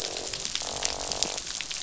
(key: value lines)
label: biophony, croak
recorder: SoundTrap 500